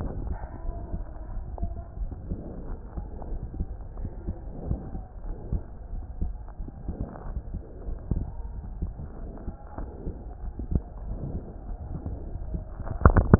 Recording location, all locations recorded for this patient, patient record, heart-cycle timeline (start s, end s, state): aortic valve (AV)
aortic valve (AV)+pulmonary valve (PV)+tricuspid valve (TV)+mitral valve (MV)
#Age: Child
#Sex: Male
#Height: 131.0 cm
#Weight: 23.7 kg
#Pregnancy status: False
#Murmur: Absent
#Murmur locations: nan
#Most audible location: nan
#Systolic murmur timing: nan
#Systolic murmur shape: nan
#Systolic murmur grading: nan
#Systolic murmur pitch: nan
#Systolic murmur quality: nan
#Diastolic murmur timing: nan
#Diastolic murmur shape: nan
#Diastolic murmur grading: nan
#Diastolic murmur pitch: nan
#Diastolic murmur quality: nan
#Outcome: Abnormal
#Campaign: 2015 screening campaign
0.00	0.50	unannotated
0.50	0.66	diastole
0.66	0.76	S1
0.76	0.94	systole
0.94	1.04	S2
1.04	1.38	diastole
1.38	1.46	S1
1.46	1.62	systole
1.62	1.72	S2
1.72	2.00	diastole
2.00	2.10	S1
2.10	2.28	systole
2.28	2.38	S2
2.38	2.67	diastole
2.67	2.78	S1
2.78	2.94	systole
2.94	3.05	S2
3.05	3.30	diastole
3.30	3.39	S1
3.39	3.58	systole
3.58	3.67	S2
3.67	3.98	diastole
3.98	4.09	S1
4.09	4.26	systole
4.26	4.34	S2
4.34	4.65	diastole
4.65	4.77	S1
4.77	4.92	systole
4.92	5.00	S2
5.00	5.22	diastole
5.22	5.34	S1
5.34	5.50	systole
5.50	5.60	S2
5.60	5.90	diastole
5.90	6.02	S1
6.02	6.18	systole
6.18	6.29	S2
6.29	6.58	diastole
6.58	6.71	S1
6.71	13.39	unannotated